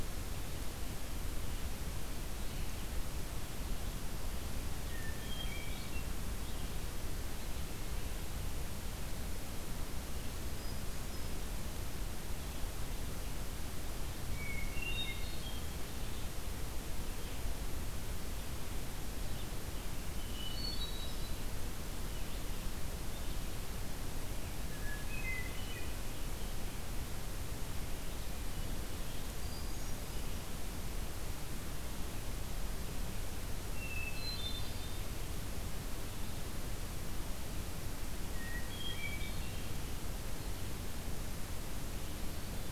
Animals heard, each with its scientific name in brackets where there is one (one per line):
Hermit Thrush (Catharus guttatus)